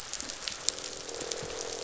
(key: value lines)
label: biophony, croak
recorder: SoundTrap 500